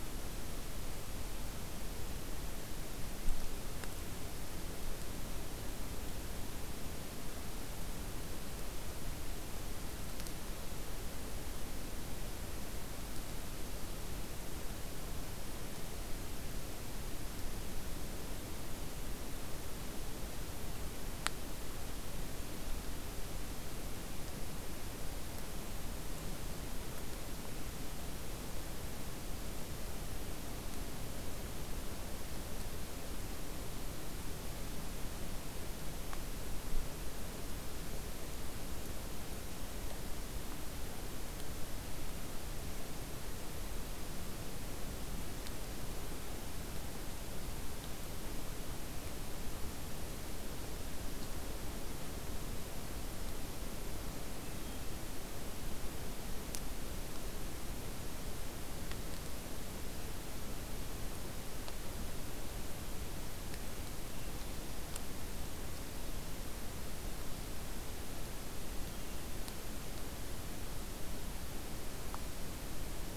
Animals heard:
forest ambience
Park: Acadia National Park